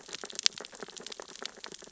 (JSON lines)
{"label": "biophony, sea urchins (Echinidae)", "recorder": "SoundTrap 600 or HydroMoth"}